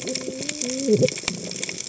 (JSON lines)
{"label": "biophony, cascading saw", "recorder": "HydroMoth"}